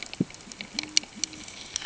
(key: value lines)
label: ambient
recorder: HydroMoth